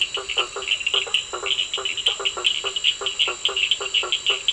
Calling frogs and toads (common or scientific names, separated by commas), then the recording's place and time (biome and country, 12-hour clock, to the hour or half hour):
blacksmith tree frog, two-colored oval frog, Cochran's lime tree frog
Atlantic Forest, Brazil, 9pm